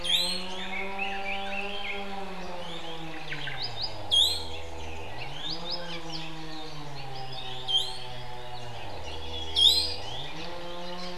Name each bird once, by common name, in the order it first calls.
Iiwi, Red-billed Leiothrix, Omao, Apapane